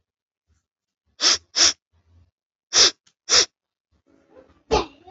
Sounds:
Sniff